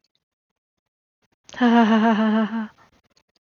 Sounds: Laughter